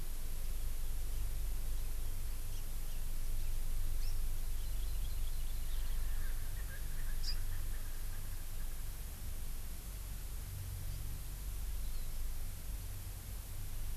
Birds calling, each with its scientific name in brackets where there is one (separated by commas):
Hawaii Amakihi (Chlorodrepanis virens), Erckel's Francolin (Pternistis erckelii)